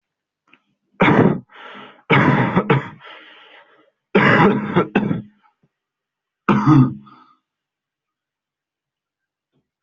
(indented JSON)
{
  "expert_labels": [
    {
      "quality": "good",
      "cough_type": "wet",
      "dyspnea": false,
      "wheezing": false,
      "stridor": false,
      "choking": false,
      "congestion": false,
      "nothing": true,
      "diagnosis": "lower respiratory tract infection",
      "severity": "severe"
    }
  ],
  "age": 18,
  "gender": "female",
  "respiratory_condition": false,
  "fever_muscle_pain": false,
  "status": "COVID-19"
}